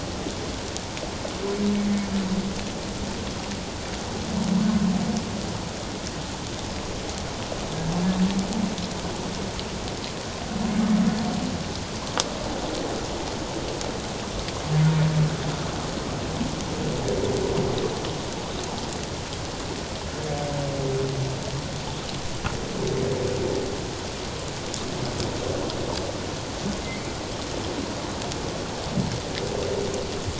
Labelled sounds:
26.8	27.1	humpback whale, 2.0 to 2.4 kHz

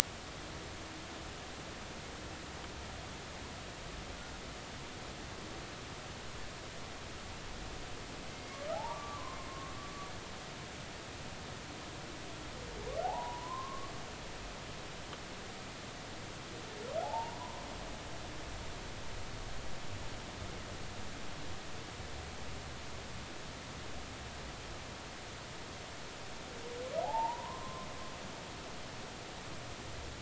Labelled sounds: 8.7	9.4	humpback whale, 0.80 to 1.2 kHz
13.0	13.9	humpback whale, 0.80 to 1.2 kHz
17.0	17.7	humpback whale, 0.80 to 1.1 kHz
27.0	27.9	humpback whale, 0.80 to 1.1 kHz

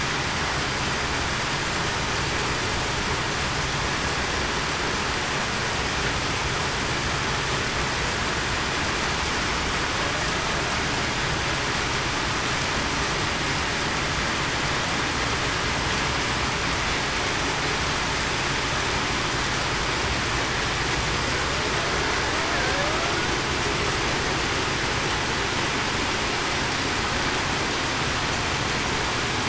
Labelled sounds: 22.6	23.1	killer whale, Bigg's (transient), 0.52 to 0.70 kHz

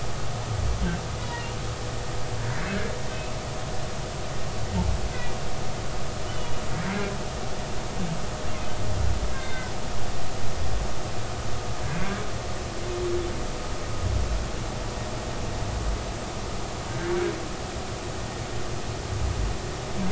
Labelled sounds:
1.2	1.5	humpback whale, 2.7 to 3.9 kHz
5.1	5.4	humpback whale, 1.9 to 2.1 kHz
6.2	6.6	humpback whale, 2.8 to 3.1 kHz
9.3	9.7	humpback whale, 1.5 to 3.7 kHz

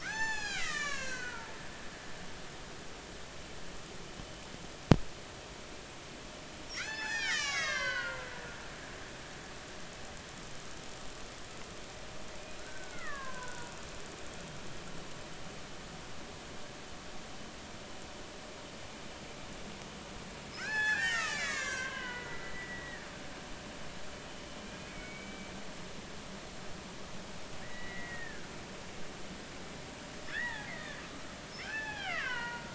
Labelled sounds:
0.0	1.5	killer whale, Bigg's (transient), 0.80 to 8.0 kHz
6.7	9.2	killer whale, Bigg's (transient), 0.80 to 7.9 kHz
12.6	14.7	killer whale, Bigg's (transient), 0.93 to 2.2 kHz
20.5	23.0	killer whale, Bigg's (transient), 0.80 to 8.0 kHz
25.9	26.5	killer whale, Bigg's (transient), 2.1 to 2.4 kHz
27.6	28.5	killer whale, Bigg's (transient), 1.4 to 2.9 kHz
30.2	31.0	killer whale, Bigg's (transient), 0.80 to 2.2 kHz
31.5	32.7	killer whale, Bigg's (transient), 0.80 to 5.4 kHz

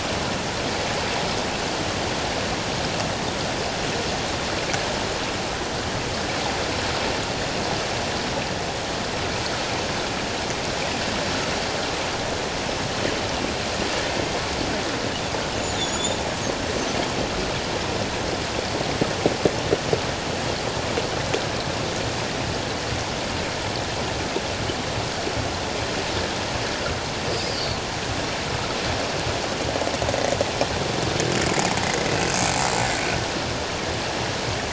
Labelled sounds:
15.6	16.2	killer whale, 3.3 to 7.2 kHz
27.5	27.8	killer whale, 4.4 to 4.8 kHz

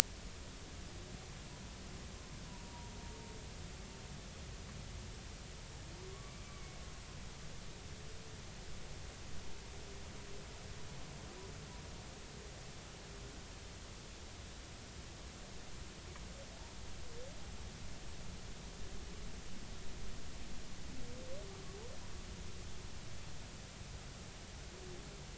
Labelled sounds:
2.5	2.9	humpback whale, 0.90 to 1.0 kHz
6.0	6.8	humpback whale, 0.99 to 2.3 kHz

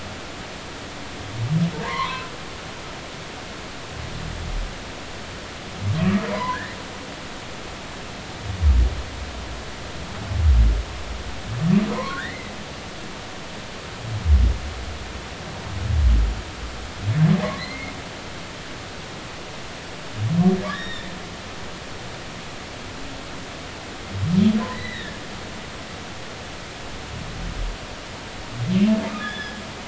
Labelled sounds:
1.7	2.3	humpback whale, 0.86 to 2.4 kHz
6.0	6.8	humpback whale, 0.90 to 2.1 kHz
11.9	12.5	humpback whale, 0.90 to 2.2 kHz
17.6	17.9	humpback whale, 1.8 to 2.2 kHz
20.7	21.1	humpback whale, 1.6 to 5.6 kHz
24.7	25.2	humpback whale, 1.6 to 4.1 kHz
29.1	29.6	humpback whale, 1.2 to 3.5 kHz

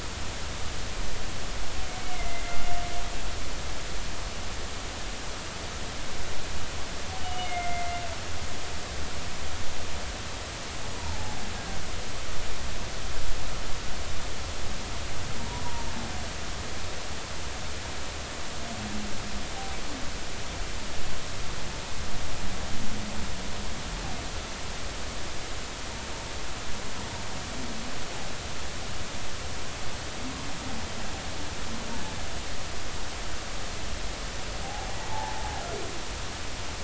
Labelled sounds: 2.1	2.6	humpback whale, 2.0 to 2.2 kHz
7.2	8.0	humpback whale, 2.0 to 3.0 kHz
10.9	11.2	humpback whale, 0.83 to 1.0 kHz
34.6	35.4	humpback whale, 0.80 to 1.0 kHz

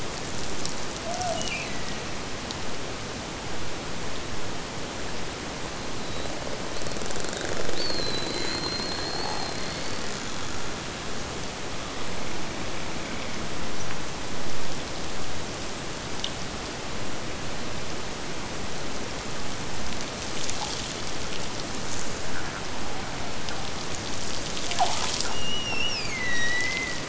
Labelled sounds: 1.0	2.2	killer whale, Bigg's (transient), Gulf of Alaska transient, 0.48 to 3.0 kHz
25.3	27.0	killer whale, Bigg's (transient), Gulf of Alaska transient, 1.7 to 5.9 kHz

